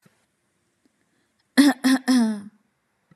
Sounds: Cough